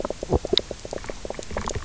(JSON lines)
{"label": "biophony, knock croak", "recorder": "SoundTrap 300"}